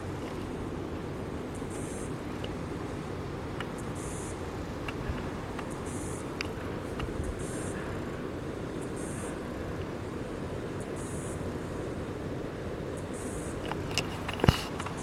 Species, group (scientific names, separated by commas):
Yoyetta cumberlandi, Cicadidae